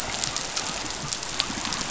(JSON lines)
{"label": "biophony", "recorder": "SoundTrap 500"}